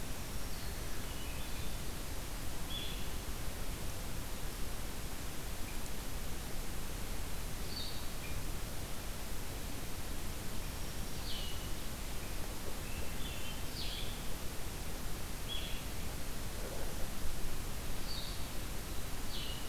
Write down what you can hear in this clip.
Blue-headed Vireo, Black-throated Green Warbler, Hermit Thrush